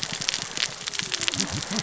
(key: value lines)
label: biophony, cascading saw
recorder: SoundTrap 600 or HydroMoth